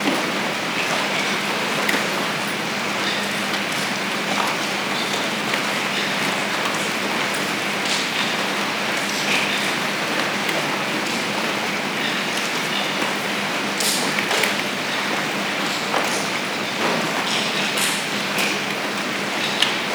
Is the noise level consistent throughout?
yes